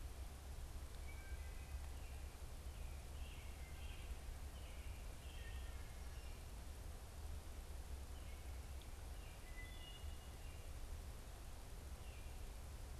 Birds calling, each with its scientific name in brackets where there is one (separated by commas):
Wood Thrush (Hylocichla mustelina), American Robin (Turdus migratorius)